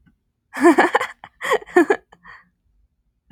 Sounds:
Laughter